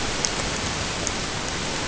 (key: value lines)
label: ambient
recorder: HydroMoth